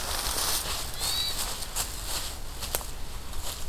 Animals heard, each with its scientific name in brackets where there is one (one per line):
Hermit Thrush (Catharus guttatus)